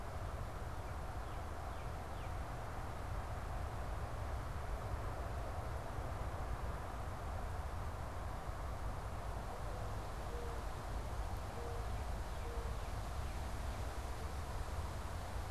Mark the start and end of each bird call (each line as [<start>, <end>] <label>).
[0.00, 2.70] Northern Cardinal (Cardinalis cardinalis)
[11.70, 14.20] Northern Cardinal (Cardinalis cardinalis)